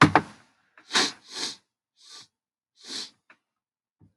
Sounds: Sniff